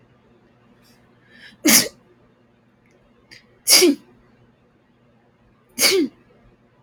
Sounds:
Sneeze